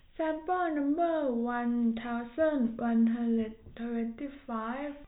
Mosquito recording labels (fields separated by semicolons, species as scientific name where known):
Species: no mosquito; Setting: cup